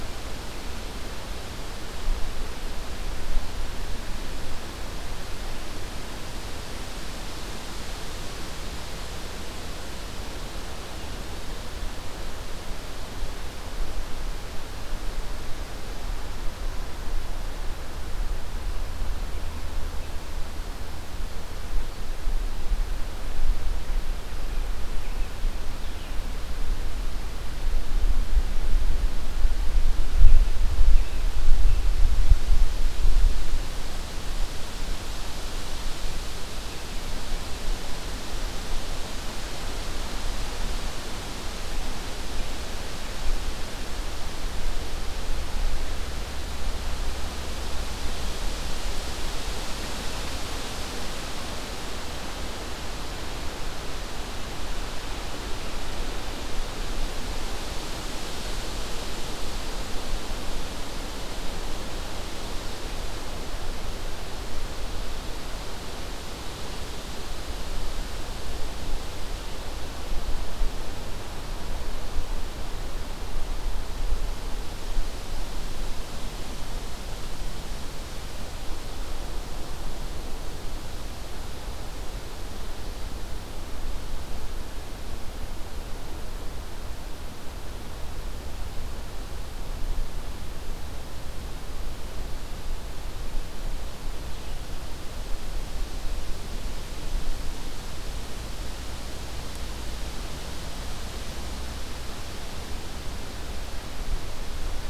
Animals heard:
forest ambience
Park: Acadia National Park